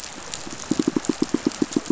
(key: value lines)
label: biophony, pulse
recorder: SoundTrap 500